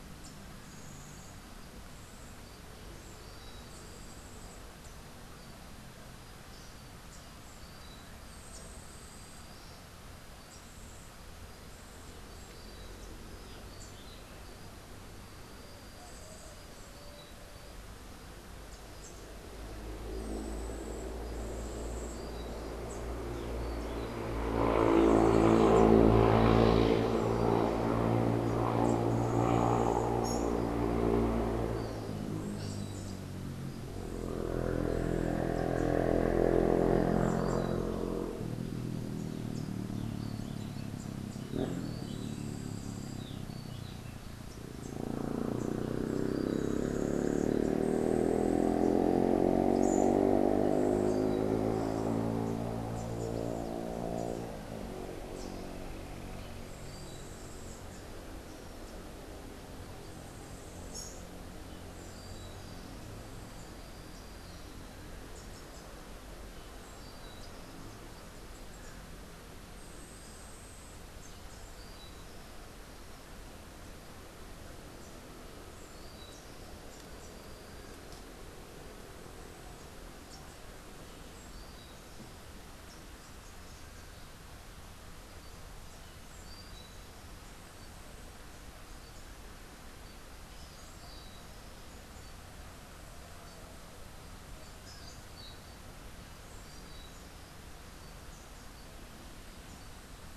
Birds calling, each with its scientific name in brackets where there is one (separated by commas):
Rufous-capped Warbler (Basileuterus rufifrons), Yellow-faced Grassquit (Tiaris olivaceus), Russet-crowned Warbler (Myiothlypis coronata)